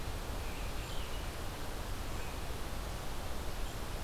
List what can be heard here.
forest ambience